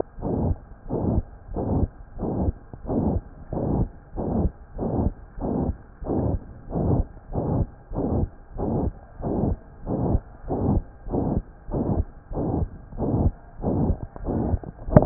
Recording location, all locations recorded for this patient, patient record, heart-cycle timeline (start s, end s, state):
pulmonary valve (PV)
aortic valve (AV)+pulmonary valve (PV)+tricuspid valve (TV)+mitral valve (MV)
#Age: Child
#Sex: Male
#Height: 131.0 cm
#Weight: 32.5 kg
#Pregnancy status: False
#Murmur: Present
#Murmur locations: aortic valve (AV)+mitral valve (MV)+pulmonary valve (PV)+tricuspid valve (TV)
#Most audible location: pulmonary valve (PV)
#Systolic murmur timing: Holosystolic
#Systolic murmur shape: Plateau
#Systolic murmur grading: III/VI or higher
#Systolic murmur pitch: High
#Systolic murmur quality: Harsh
#Diastolic murmur timing: nan
#Diastolic murmur shape: nan
#Diastolic murmur grading: nan
#Diastolic murmur pitch: nan
#Diastolic murmur quality: nan
#Outcome: Abnormal
#Campaign: 2015 screening campaign
0.00	0.18	unannotated
0.18	0.33	S1
0.33	0.47	systole
0.47	0.58	S2
0.58	0.84	diastole
0.84	1.00	S1
1.00	1.09	systole
1.09	1.26	S2
1.26	1.50	diastole
1.50	1.62	S1
1.62	1.77	systole
1.77	1.88	S2
1.88	2.15	diastole
2.15	2.27	S1
2.27	2.40	systole
2.40	2.56	S2
2.56	2.83	diastole
2.83	2.97	S1
2.97	3.10	systole
3.10	3.24	S2
3.24	3.45	diastole
3.45	3.60	S1
3.60	3.76	systole
3.76	3.90	S2
3.90	4.11	diastole
4.11	4.25	S1
4.25	4.42	systole
4.42	4.54	S2
4.54	4.72	diastole
4.72	4.85	S1
4.85	5.01	systole
5.01	5.16	S2
5.16	5.33	diastole
5.33	5.47	S1
5.47	15.06	unannotated